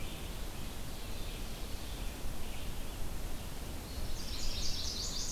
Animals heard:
Ovenbird (Seiurus aurocapilla), Red-eyed Vireo (Vireo olivaceus), Chestnut-sided Warbler (Setophaga pensylvanica)

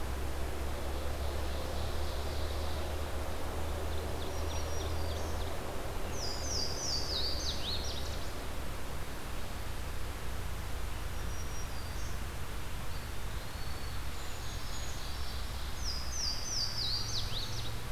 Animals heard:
Ovenbird (Seiurus aurocapilla), Eastern Wood-Pewee (Contopus virens), Brown Creeper (Certhia americana), Black-throated Green Warbler (Setophaga virens), Louisiana Waterthrush (Parkesia motacilla)

